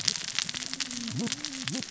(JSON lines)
{"label": "biophony, cascading saw", "recorder": "SoundTrap 600 or HydroMoth"}